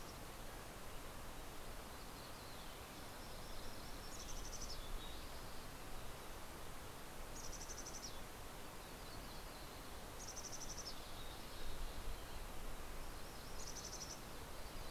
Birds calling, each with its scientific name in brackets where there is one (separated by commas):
Mountain Chickadee (Poecile gambeli), Mountain Quail (Oreortyx pictus), Yellow-rumped Warbler (Setophaga coronata)